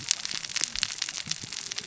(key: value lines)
label: biophony, cascading saw
recorder: SoundTrap 600 or HydroMoth